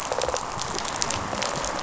{"label": "biophony, rattle response", "recorder": "SoundTrap 500"}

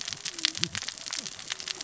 {"label": "biophony, cascading saw", "recorder": "SoundTrap 600 or HydroMoth"}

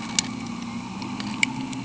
{"label": "anthrophony, boat engine", "recorder": "HydroMoth"}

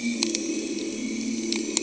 {"label": "anthrophony, boat engine", "recorder": "HydroMoth"}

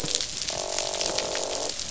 {"label": "biophony, croak", "recorder": "SoundTrap 500"}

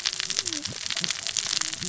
{"label": "biophony, cascading saw", "recorder": "SoundTrap 600 or HydroMoth"}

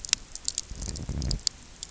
{"label": "biophony", "recorder": "SoundTrap 300"}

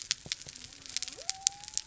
{"label": "biophony", "recorder": "SoundTrap 300"}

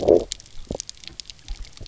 {"label": "biophony, low growl", "recorder": "SoundTrap 300"}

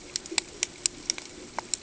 {"label": "ambient", "recorder": "HydroMoth"}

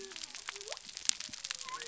{"label": "biophony", "recorder": "SoundTrap 300"}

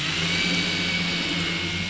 {"label": "anthrophony, boat engine", "recorder": "SoundTrap 500"}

